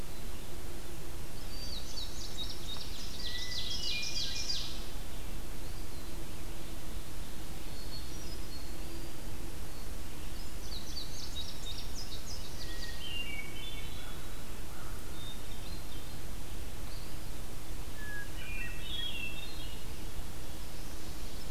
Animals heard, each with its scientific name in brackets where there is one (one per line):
Eastern Wood-Pewee (Contopus virens)
Indigo Bunting (Passerina cyanea)
Ovenbird (Seiurus aurocapilla)
American Crow (Corvus brachyrhynchos)
Hermit Thrush (Catharus guttatus)